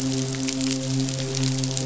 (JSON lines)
{"label": "biophony, midshipman", "recorder": "SoundTrap 500"}